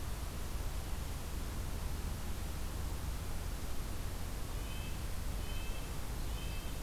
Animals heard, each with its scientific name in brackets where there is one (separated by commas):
Red-breasted Nuthatch (Sitta canadensis)